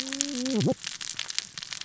{"label": "biophony, cascading saw", "recorder": "SoundTrap 600 or HydroMoth"}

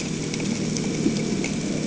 {"label": "anthrophony, boat engine", "recorder": "HydroMoth"}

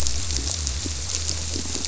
{"label": "biophony", "recorder": "SoundTrap 300"}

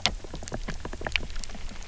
{"label": "biophony, grazing", "recorder": "SoundTrap 300"}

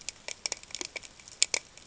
{"label": "ambient", "recorder": "HydroMoth"}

